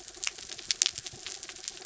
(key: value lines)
label: anthrophony, mechanical
recorder: SoundTrap 300